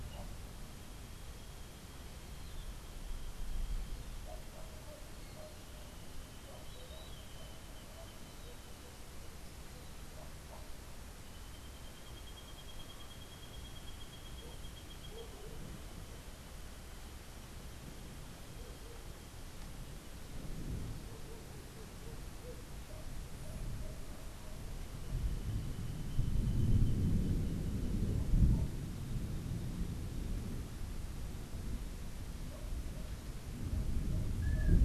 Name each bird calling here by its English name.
Long-tailed Manakin